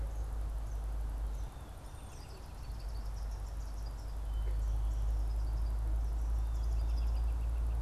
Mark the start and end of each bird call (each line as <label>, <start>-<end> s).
Eastern Kingbird (Tyrannus tyrannus), 0.5-1.7 s
Eastern Kingbird (Tyrannus tyrannus), 2.0-7.3 s
American Robin (Turdus migratorius), 2.0-7.8 s